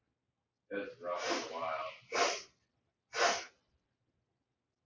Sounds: Sniff